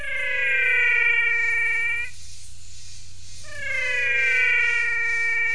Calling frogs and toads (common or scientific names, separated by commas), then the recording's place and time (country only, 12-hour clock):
menwig frog
Brazil, 6:30pm